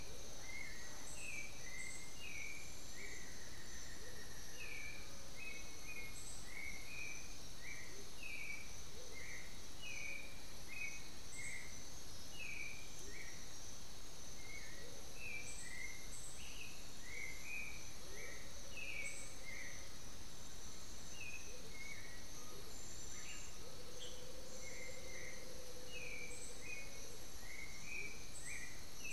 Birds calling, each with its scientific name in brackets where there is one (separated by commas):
Undulated Tinamou (Crypturellus undulatus), Amazonian Motmot (Momotus momota), Buff-throated Woodcreeper (Xiphorhynchus guttatus), Black-billed Thrush (Turdus ignobilis)